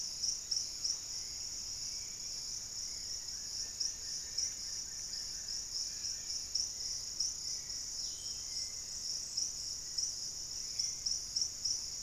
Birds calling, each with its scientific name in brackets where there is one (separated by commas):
Dusky-capped Greenlet (Pachysylvia hypoxantha), Hauxwell's Thrush (Turdus hauxwelli), Wing-barred Piprites (Piprites chloris)